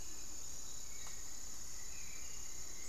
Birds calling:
Hauxwell's Thrush (Turdus hauxwelli)
unidentified bird

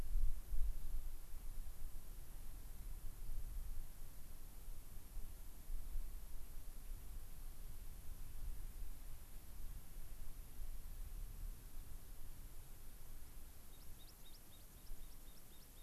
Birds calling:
unidentified bird

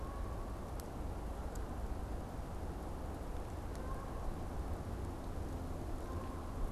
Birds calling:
Canada Goose (Branta canadensis)

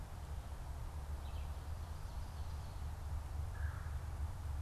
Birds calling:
Red-bellied Woodpecker (Melanerpes carolinus)

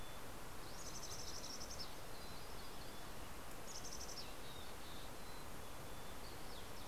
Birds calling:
Mountain Chickadee (Poecile gambeli)
MacGillivray's Warbler (Geothlypis tolmiei)
Dusky Flycatcher (Empidonax oberholseri)

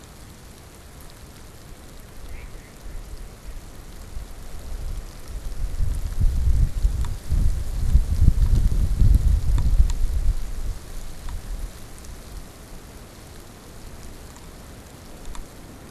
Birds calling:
Mallard (Anas platyrhynchos)

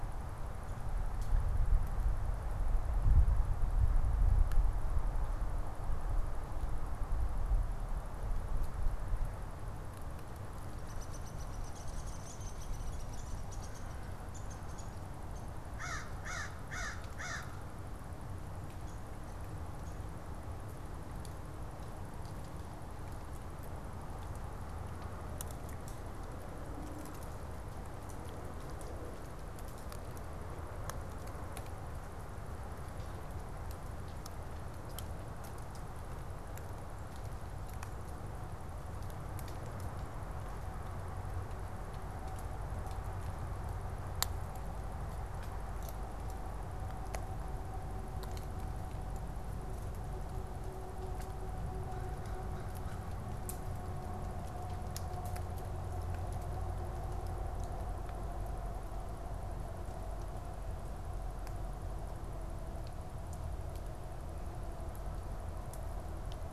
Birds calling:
American Crow (Corvus brachyrhynchos)
Downy Woodpecker (Dryobates pubescens)

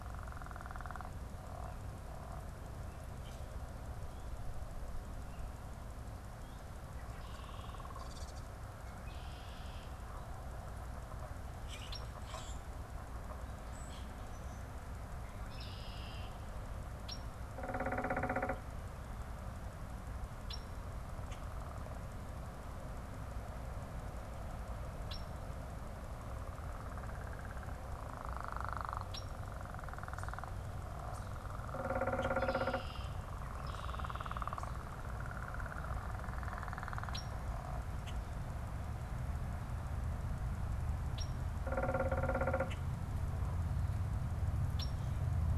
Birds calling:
unidentified bird
Common Grackle (Quiscalus quiscula)
Red-winged Blackbird (Agelaius phoeniceus)

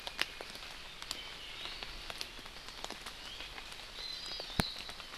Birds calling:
Iiwi (Drepanis coccinea)
Hawaii Amakihi (Chlorodrepanis virens)

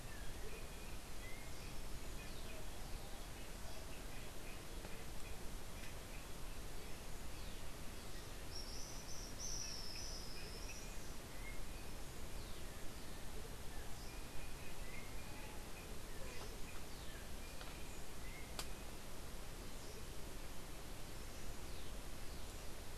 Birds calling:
Andean Motmot (Momotus aequatorialis)
Tropical Kingbird (Tyrannus melancholicus)

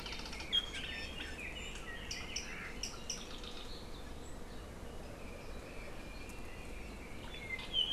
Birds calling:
Red-billed Leiothrix (Leiothrix lutea)
Iiwi (Drepanis coccinea)

